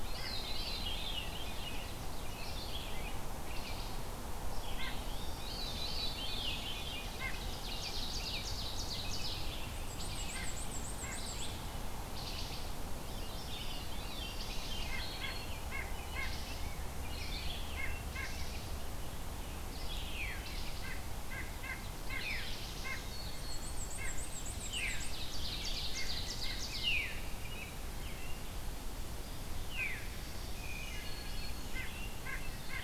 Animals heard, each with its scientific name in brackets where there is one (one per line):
White-breasted Nuthatch (Sitta carolinensis)
Black-and-white Warbler (Mniotilta varia)
Wood Thrush (Hylocichla mustelina)
Red-eyed Vireo (Vireo olivaceus)
Black-throated Green Warbler (Setophaga virens)
Rose-breasted Grosbeak (Pheucticus ludovicianus)
Veery (Catharus fuscescens)
Ovenbird (Seiurus aurocapilla)